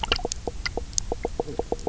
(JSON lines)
{"label": "biophony, knock croak", "recorder": "SoundTrap 300"}